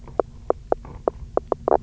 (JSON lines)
{"label": "biophony, knock croak", "recorder": "SoundTrap 300"}